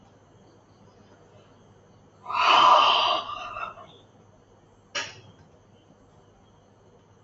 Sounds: Sigh